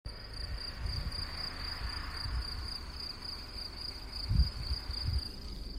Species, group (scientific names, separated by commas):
Gryllus campestris, Orthoptera